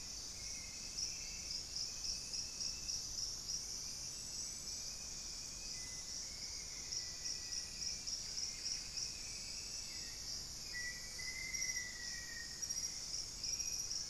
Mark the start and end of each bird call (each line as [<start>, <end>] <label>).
[0.00, 14.10] Hauxwell's Thrush (Turdus hauxwelli)
[4.48, 7.78] Thrush-like Wren (Campylorhynchus turdinus)
[5.38, 13.08] Black-faced Antthrush (Formicarius analis)
[8.18, 9.48] Buff-breasted Wren (Cantorchilus leucotis)